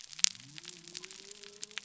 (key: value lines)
label: biophony
recorder: SoundTrap 300